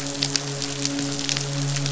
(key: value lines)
label: biophony, midshipman
recorder: SoundTrap 500